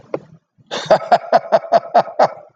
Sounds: Laughter